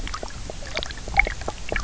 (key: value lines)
label: biophony
recorder: SoundTrap 300